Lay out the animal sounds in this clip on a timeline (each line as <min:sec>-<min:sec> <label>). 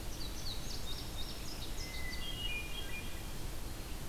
0:00.0-0:02.4 Indigo Bunting (Passerina cyanea)
0:01.6-0:03.5 Hermit Thrush (Catharus guttatus)